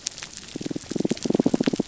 {"label": "biophony, damselfish", "recorder": "SoundTrap 300"}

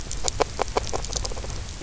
{"label": "biophony, grazing", "recorder": "SoundTrap 300"}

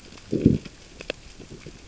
{"label": "biophony, growl", "recorder": "SoundTrap 600 or HydroMoth"}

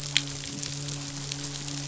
{"label": "biophony, midshipman", "recorder": "SoundTrap 500"}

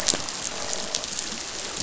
{"label": "biophony, croak", "recorder": "SoundTrap 500"}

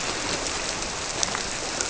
{"label": "biophony", "recorder": "SoundTrap 300"}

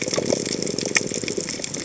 {"label": "biophony", "recorder": "HydroMoth"}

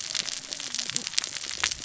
{"label": "biophony, cascading saw", "recorder": "SoundTrap 600 or HydroMoth"}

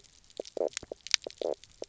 {"label": "biophony, knock croak", "recorder": "SoundTrap 300"}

